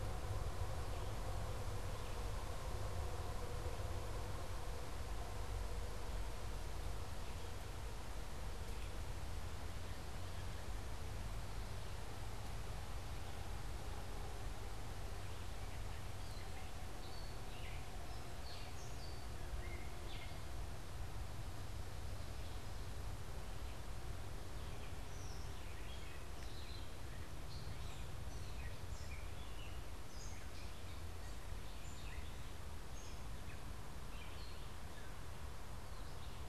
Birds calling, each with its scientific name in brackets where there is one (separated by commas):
Gray Catbird (Dumetella carolinensis), Red-eyed Vireo (Vireo olivaceus)